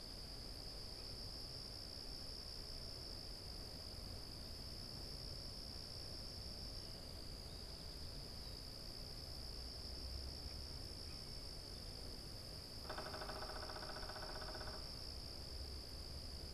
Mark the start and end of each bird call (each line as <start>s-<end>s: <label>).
12.6s-14.9s: unidentified bird